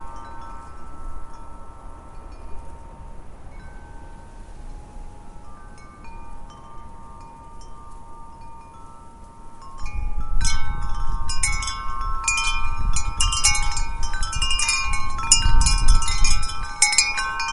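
0.0s A glockenspiel chimes slowly and gently in a rhythmic pattern. 10.2s
10.2s A glockenspiel chimes brightly in a rhythmic pattern. 17.5s

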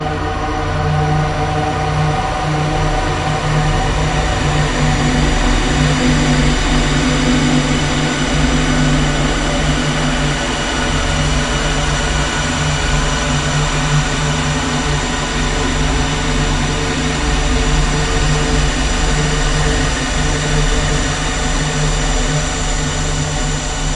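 0.0s An ambient electronic sound with a filtered tone is sustained. 24.0s

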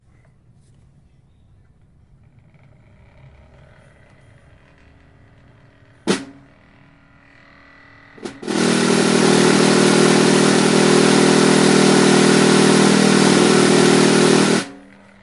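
6.0s A small machine is being tested at a short distance. 6.4s
8.2s A machine runs continuously with a loud spinning sound in the distance. 14.7s

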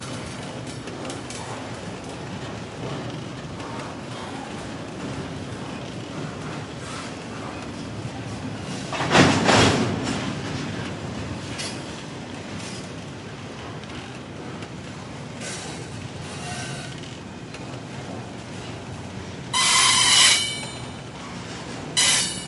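0.0s Subtle and weak clicking with background noises. 22.5s
8.9s A brief, loud thudding sound. 10.0s
19.5s A brief, high-pitched train whistle. 20.6s
21.9s A brief, high-pitched train whistle. 22.5s

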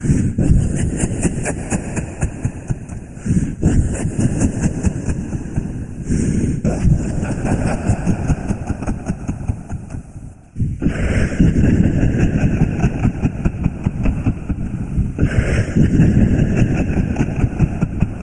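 0.0s A deep, sinister laugh with a menacing tone. 18.2s

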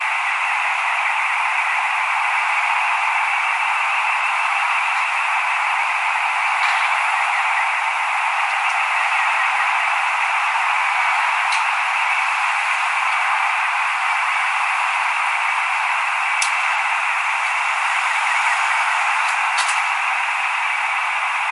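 0.0s An alarm is constantly going off in the distance. 21.5s
0.0s Rain falling steadily. 21.5s
6.5s A metallic clank is heard. 7.2s
11.6s A metallic clank is heard. 12.2s
16.4s A metallic clank is heard. 17.3s
19.5s A metallic clicking sound occurs twice. 20.6s

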